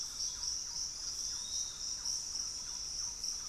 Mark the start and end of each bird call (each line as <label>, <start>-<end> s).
Gray Antwren (Myrmotherula menetriesii), 0.0-2.4 s
Piratic Flycatcher (Legatus leucophaius), 0.0-3.5 s
Thrush-like Wren (Campylorhynchus turdinus), 0.0-3.5 s
Pygmy Antwren (Myrmotherula brachyura), 2.4-3.5 s